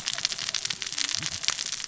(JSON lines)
{"label": "biophony, cascading saw", "recorder": "SoundTrap 600 or HydroMoth"}